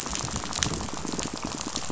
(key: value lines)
label: biophony, rattle
recorder: SoundTrap 500